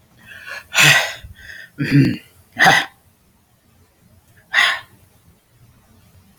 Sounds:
Sigh